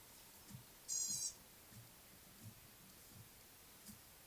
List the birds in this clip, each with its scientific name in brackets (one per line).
Gray-backed Camaroptera (Camaroptera brevicaudata)